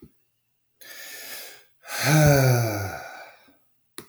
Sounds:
Sigh